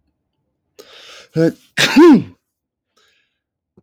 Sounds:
Sneeze